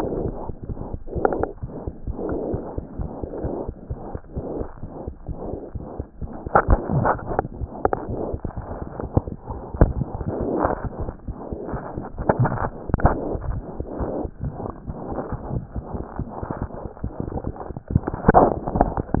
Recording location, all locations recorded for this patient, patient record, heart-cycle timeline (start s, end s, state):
mitral valve (MV)
aortic valve (AV)+pulmonary valve (PV)+tricuspid valve (TV)+mitral valve (MV)
#Age: Infant
#Sex: Female
#Height: 71.0 cm
#Weight: 8.6 kg
#Pregnancy status: False
#Murmur: Present
#Murmur locations: aortic valve (AV)+mitral valve (MV)+pulmonary valve (PV)+tricuspid valve (TV)
#Most audible location: tricuspid valve (TV)
#Systolic murmur timing: Holosystolic
#Systolic murmur shape: Plateau
#Systolic murmur grading: III/VI or higher
#Systolic murmur pitch: High
#Systolic murmur quality: Harsh
#Diastolic murmur timing: nan
#Diastolic murmur shape: nan
#Diastolic murmur grading: nan
#Diastolic murmur pitch: nan
#Diastolic murmur quality: nan
#Outcome: Abnormal
#Campaign: 2015 screening campaign
0.00	3.74	unannotated
3.74	3.90	diastole
3.90	4.00	S1
4.00	4.10	systole
4.10	4.20	S2
4.20	4.36	diastole
4.36	4.43	S1
4.43	4.60	systole
4.60	4.65	S2
4.65	4.82	diastole
4.82	4.90	S1
4.90	5.05	systole
5.05	5.12	S2
5.12	5.27	diastole
5.27	5.37	S1
5.37	5.51	systole
5.51	5.58	S2
5.58	5.74	diastole
5.74	5.81	S1
5.81	5.98	systole
5.98	6.05	S2
6.05	6.19	diastole
6.19	6.29	S1
6.29	6.44	systole
6.44	6.52	S2
6.52	8.09	unannotated
8.09	8.20	S1
8.20	8.28	systole
8.28	8.38	S2
8.38	8.56	diastole
8.56	8.68	S1
8.68	8.80	systole
8.80	8.87	S2
8.87	9.02	diastole
9.02	19.20	unannotated